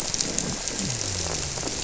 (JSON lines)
{"label": "biophony", "recorder": "SoundTrap 300"}